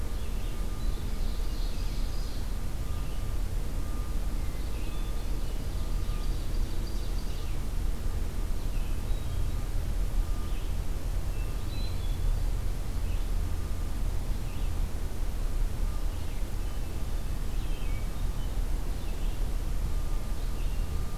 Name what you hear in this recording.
Red-eyed Vireo, Ovenbird, Hermit Thrush